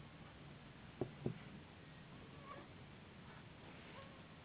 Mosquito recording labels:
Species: Anopheles gambiae s.s.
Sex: female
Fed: unfed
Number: one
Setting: insect culture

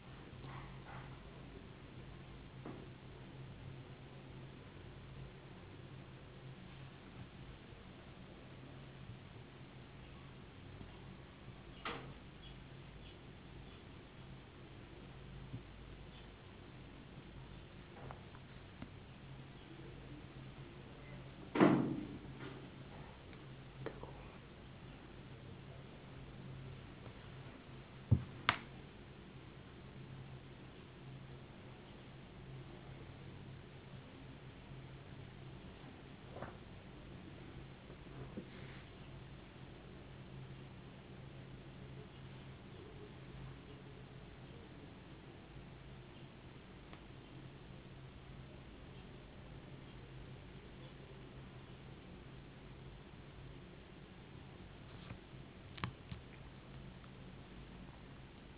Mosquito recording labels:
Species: no mosquito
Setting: insect culture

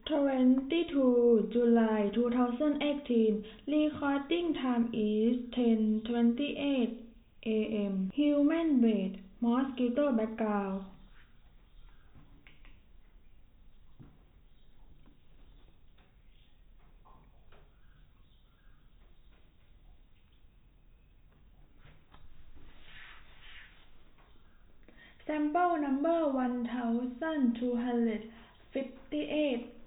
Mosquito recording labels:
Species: no mosquito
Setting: cup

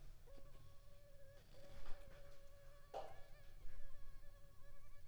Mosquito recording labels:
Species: Culex pipiens complex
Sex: female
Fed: unfed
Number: one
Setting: cup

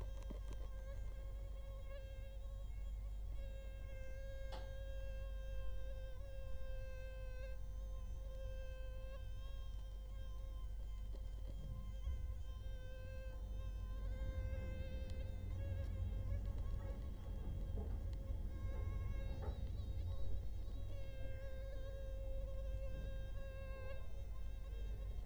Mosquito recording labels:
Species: Culex quinquefasciatus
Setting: cup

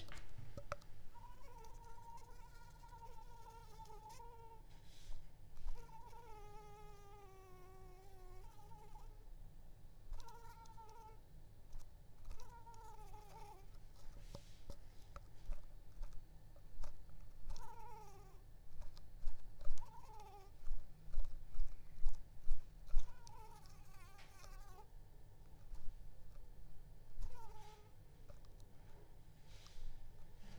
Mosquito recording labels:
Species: Anopheles arabiensis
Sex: female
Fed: unfed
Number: one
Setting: cup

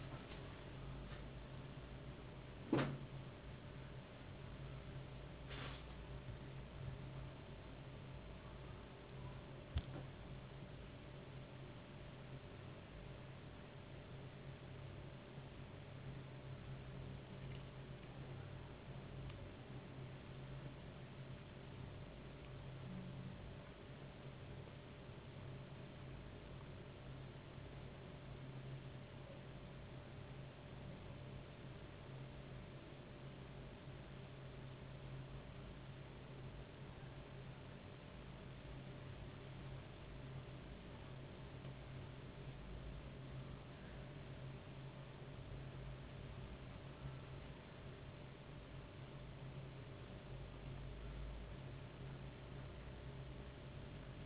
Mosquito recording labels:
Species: no mosquito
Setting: insect culture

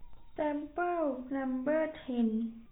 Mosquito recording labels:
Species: no mosquito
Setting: cup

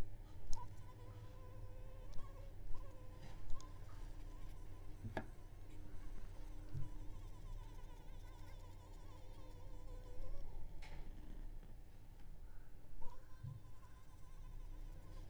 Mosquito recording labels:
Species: Anopheles arabiensis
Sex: female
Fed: unfed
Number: one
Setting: cup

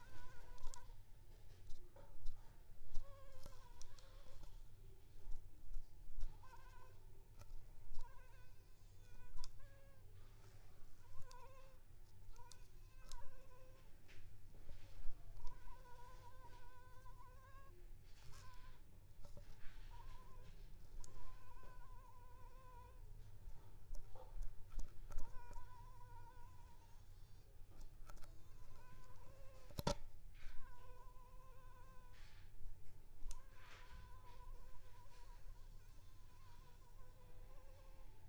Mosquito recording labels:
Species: Anopheles arabiensis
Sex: female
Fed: unfed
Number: one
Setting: cup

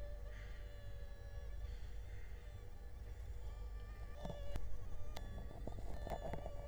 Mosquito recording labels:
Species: Culex quinquefasciatus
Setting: cup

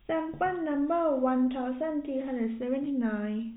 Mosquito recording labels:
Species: no mosquito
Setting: cup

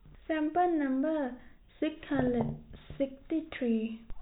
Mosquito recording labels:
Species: no mosquito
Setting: cup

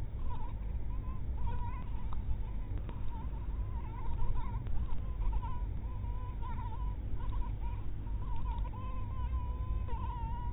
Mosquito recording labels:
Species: mosquito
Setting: cup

